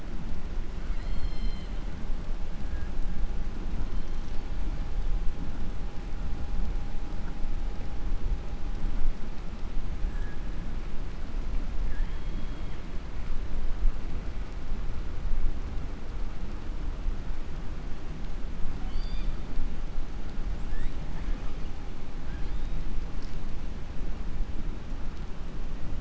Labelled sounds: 0.8	1.8	killer whale, southern resident, 1.4 to 5.3 kHz
11.8	12.8	killer whale, southern resident, 0.88 to 3.4 kHz

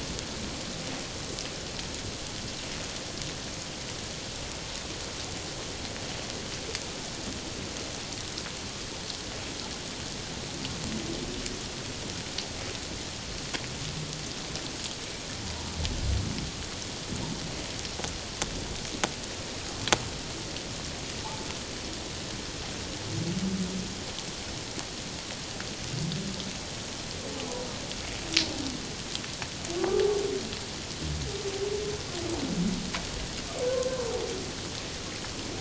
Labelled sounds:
29.8	30.0	humpback whale, 1.1 to 1.2 kHz

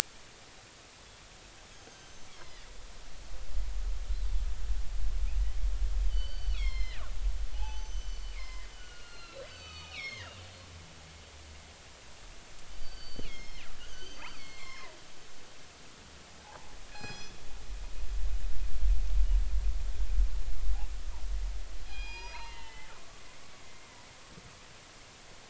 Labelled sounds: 1.7	2.6	killer whale, northern resident, G clan, 1.8 to 6.7 kHz
6.1	7.0	killer whale, northern resident, G clan, 1.7 to 5.6 kHz
7.5	10.4	killer whale, northern resident, G clan, 0.80 to 6.2 kHz
12.8	15.0	killer whale, northern resident, G clan, 0.93 to 6.6 kHz
16.4	17.4	killer whale, northern resident, G clan, 0.80 to 7.6 kHz
21.8	23.9	killer whale, northern resident, G clan, 0.83 to 5.8 kHz

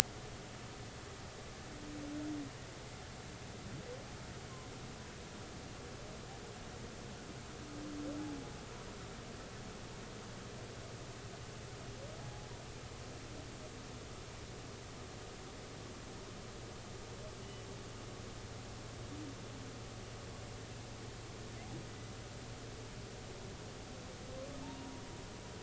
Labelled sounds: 12.2	12.5	humpback whale, 0.80 to 0.86 kHz
24.6	25.0	humpback whale, 0.83 to 1.1 kHz

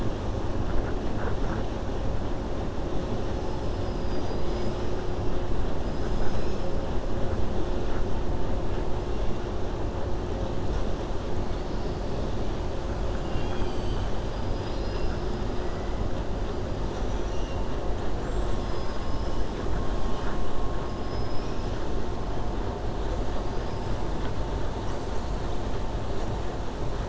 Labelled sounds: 3.7	4.9	killer whale, 2.2 to 6.2 kHz
13.1	15.3	killer whale, 0.84 to 5.7 kHz
18.1	19.4	killer whale, 2.5 to 8.0 kHz
20.0	20.4	killer whale, 1.1 to 6.3 kHz
21.0	21.7	killer whale, 5.1 to 5.8 kHz

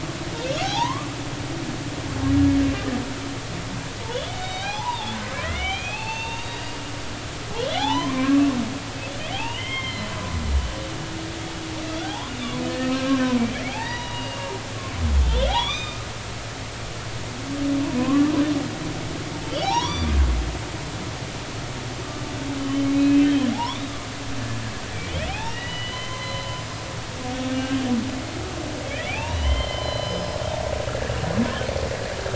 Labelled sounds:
0.6	1.1	humpback whale, 0.80 to 3.9 kHz
4.1	5.2	humpback whale, 0.80 to 3.8 kHz
5.4	6.8	humpback whale, 0.80 to 6.5 kHz
7.6	8.5	humpback whale, 0.80 to 3.7 kHz
9.3	10.2	humpback whale, 0.80 to 3.3 kHz
12.0	14.5	humpback whale, 0.80 to 3.9 kHz
15.2	16.0	humpback whale, 2.2 to 5.0 kHz
18.0	18.3	humpback whale, 0.96 to 1.2 kHz
19.5	20.1	humpback whale, 0.80 to 5.9 kHz
22.6	23.8	humpback whale, 0.80 to 3.2 kHz
24.9	26.6	humpback whale, 0.80 to 5.0 kHz
29.0	30.4	humpback whale, 0.80 to 5.2 kHz

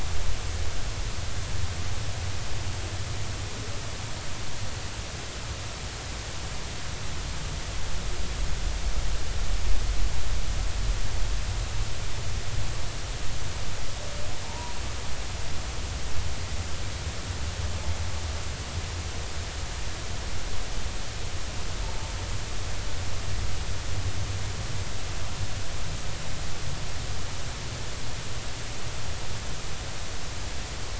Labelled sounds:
14.4	14.8	humpback whale, 0.83 to 1.0 kHz

